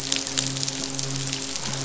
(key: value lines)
label: biophony, midshipman
recorder: SoundTrap 500